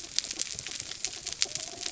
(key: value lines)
label: biophony
recorder: SoundTrap 300